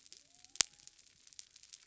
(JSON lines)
{"label": "biophony", "recorder": "SoundTrap 300"}